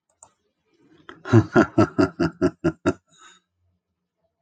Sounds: Laughter